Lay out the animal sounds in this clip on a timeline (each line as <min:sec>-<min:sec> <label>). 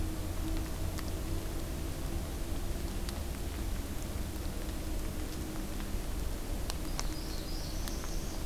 0:06.9-0:08.5 Northern Parula (Setophaga americana)